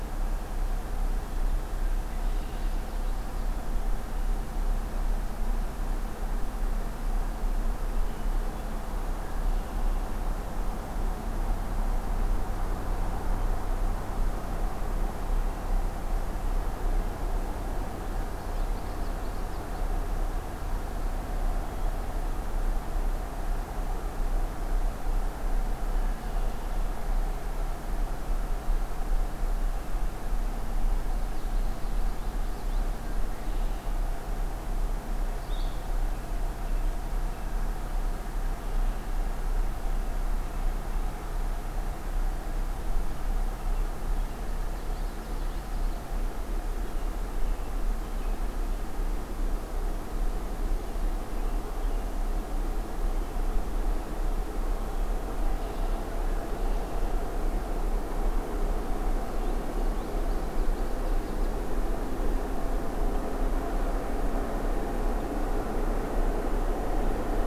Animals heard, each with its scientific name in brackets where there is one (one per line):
Red-winged Blackbird (Agelaius phoeniceus)
Blue-headed Vireo (Vireo solitarius)
Common Yellowthroat (Geothlypis trichas)